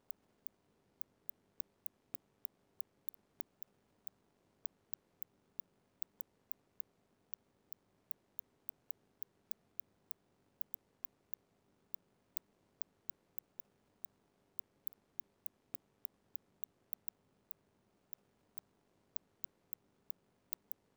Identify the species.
Cyrtaspis scutata